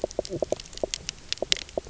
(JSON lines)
{"label": "biophony, knock croak", "recorder": "SoundTrap 300"}